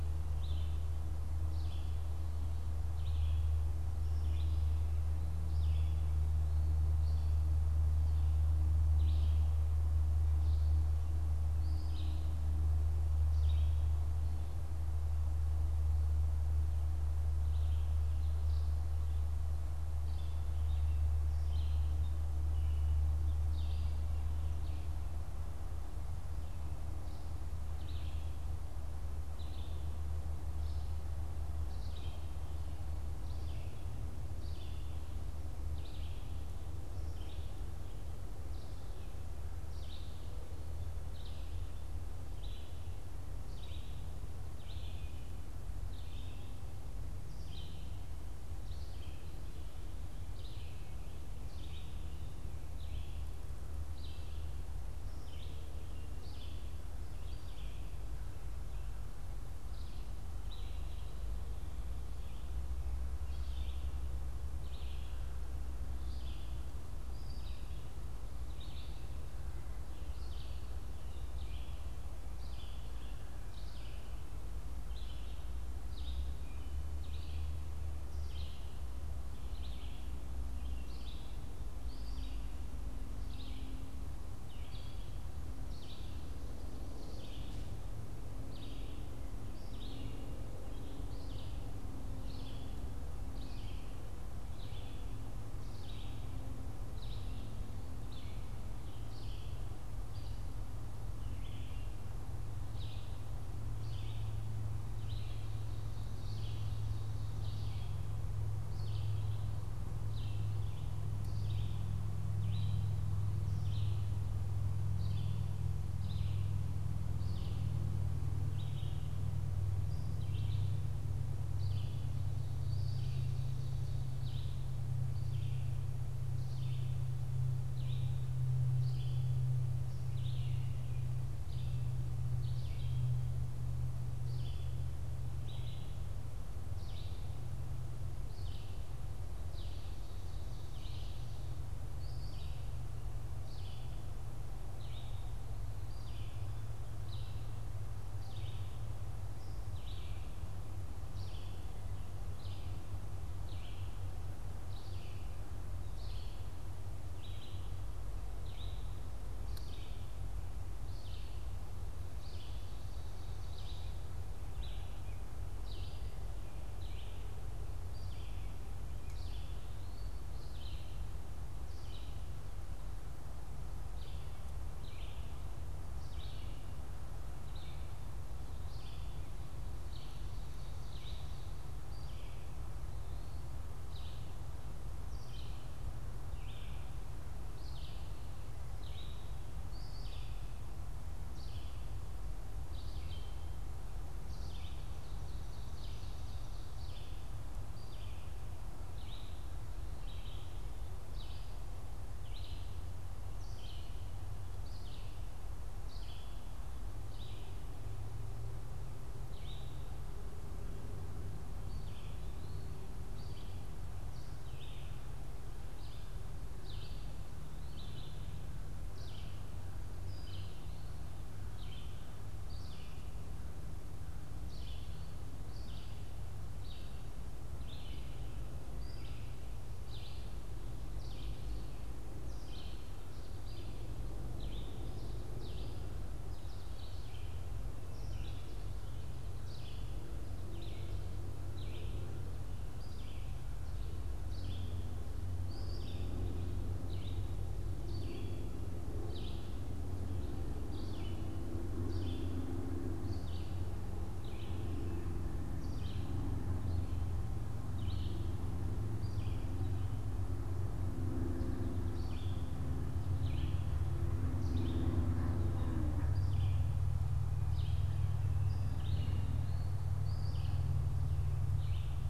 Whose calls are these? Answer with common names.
Red-eyed Vireo, Ovenbird